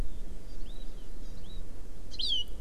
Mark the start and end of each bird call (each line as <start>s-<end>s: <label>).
0.4s-0.8s: Hawaii Amakihi (Chlorodrepanis virens)
1.2s-1.6s: Hawaii Amakihi (Chlorodrepanis virens)